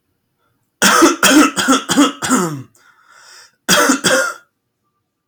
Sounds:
Cough